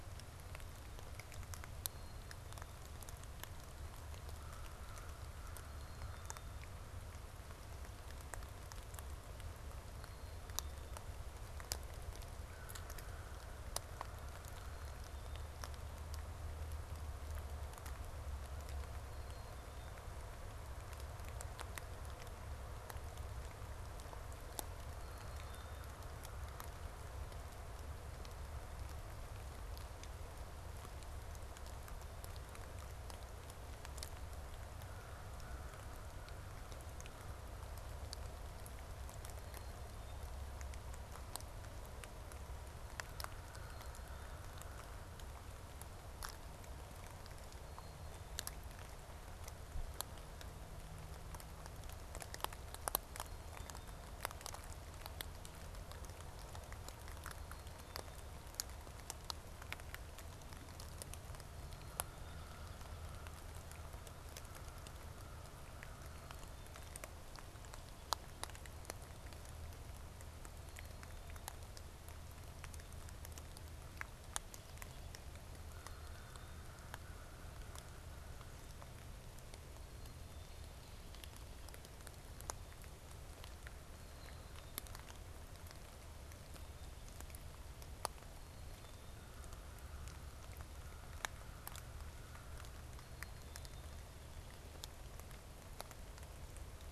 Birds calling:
Black-capped Chickadee (Poecile atricapillus)
American Crow (Corvus brachyrhynchos)

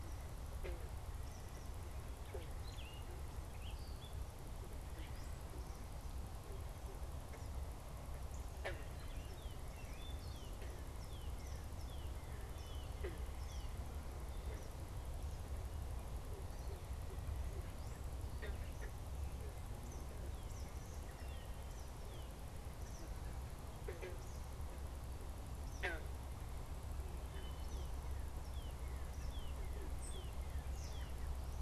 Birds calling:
Gray Catbird (Dumetella carolinensis)
Northern Cardinal (Cardinalis cardinalis)
Eastern Kingbird (Tyrannus tyrannus)

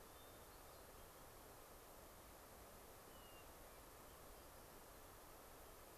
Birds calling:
Hermit Thrush (Catharus guttatus)

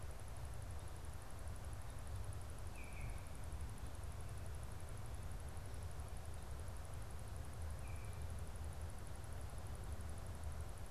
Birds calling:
Baltimore Oriole (Icterus galbula)

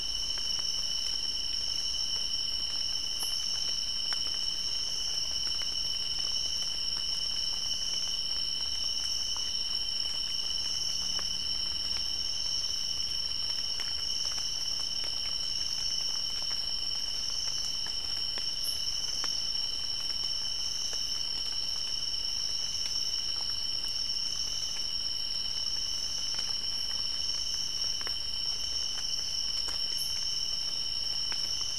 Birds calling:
White-eared Ground-Sparrow (Melozone leucotis)

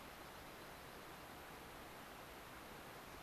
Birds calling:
Dark-eyed Junco (Junco hyemalis)

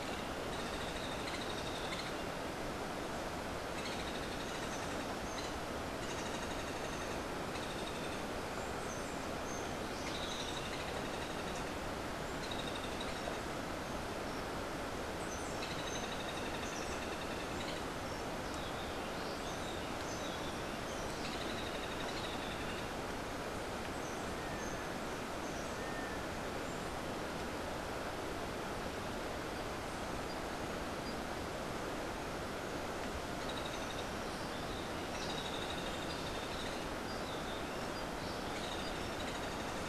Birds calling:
Hoffmann's Woodpecker (Melanerpes hoffmannii)

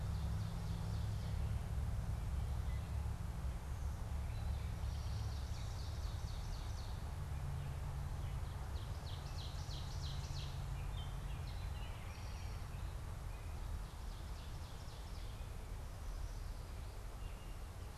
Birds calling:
Eastern Towhee (Pipilo erythrophthalmus)
Gray Catbird (Dumetella carolinensis)
Ovenbird (Seiurus aurocapilla)

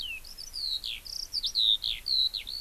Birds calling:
Eurasian Skylark (Alauda arvensis)

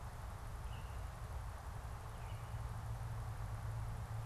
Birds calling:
Baltimore Oriole (Icterus galbula)

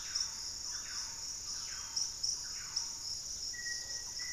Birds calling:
Yellow-margined Flycatcher (Tolmomyias assimilis)
Black-faced Antthrush (Formicarius analis)
Thrush-like Wren (Campylorhynchus turdinus)

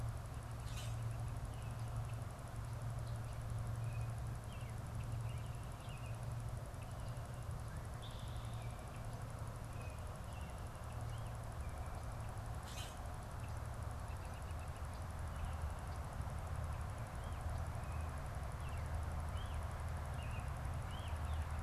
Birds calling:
American Robin (Turdus migratorius)
Northern Flicker (Colaptes auratus)
Common Grackle (Quiscalus quiscula)

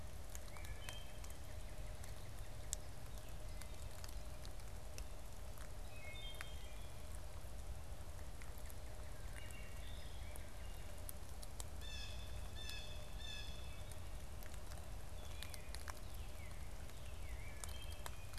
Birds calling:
Blue Jay (Cyanocitta cristata)
Northern Cardinal (Cardinalis cardinalis)
Wood Thrush (Hylocichla mustelina)

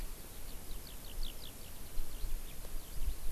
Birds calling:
Eurasian Skylark (Alauda arvensis)

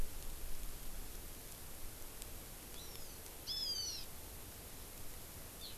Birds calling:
Hawaiian Hawk (Buteo solitarius)

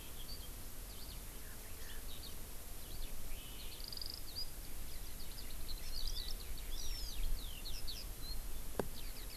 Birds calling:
Hawaii Amakihi (Chlorodrepanis virens)
Eurasian Skylark (Alauda arvensis)

